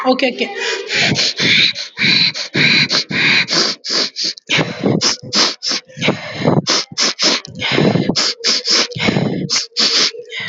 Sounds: Sniff